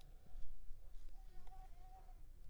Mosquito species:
Mansonia africanus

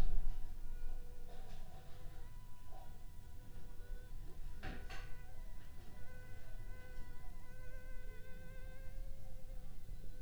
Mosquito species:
Anopheles funestus s.s.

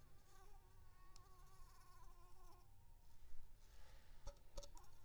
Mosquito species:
Anopheles arabiensis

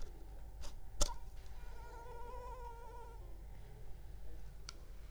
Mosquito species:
Anopheles arabiensis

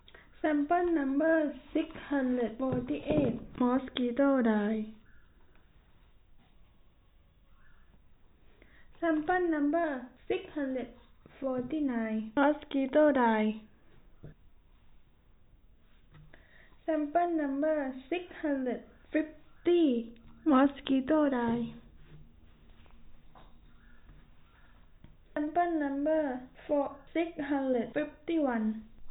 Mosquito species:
no mosquito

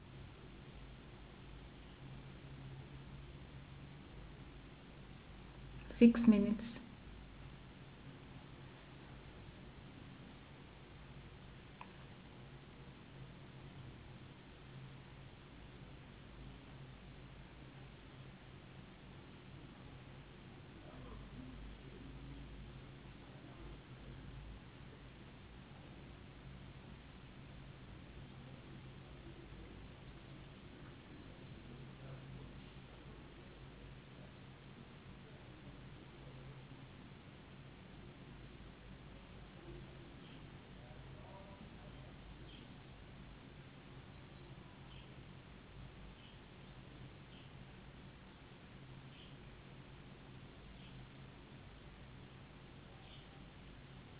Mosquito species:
no mosquito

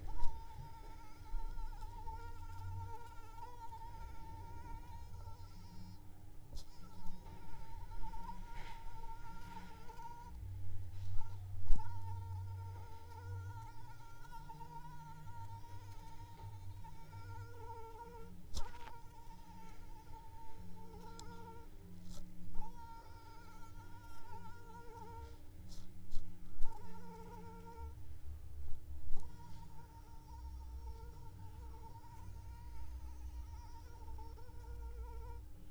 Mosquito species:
Anopheles arabiensis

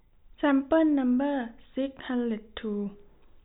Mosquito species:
no mosquito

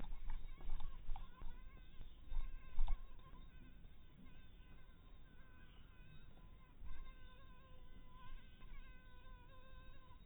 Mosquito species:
mosquito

